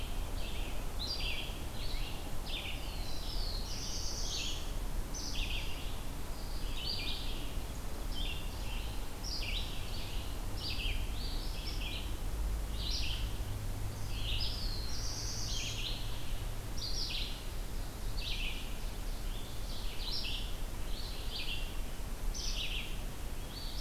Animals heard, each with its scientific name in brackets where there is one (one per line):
Ovenbird (Seiurus aurocapilla)
Red-eyed Vireo (Vireo olivaceus)
Black-throated Blue Warbler (Setophaga caerulescens)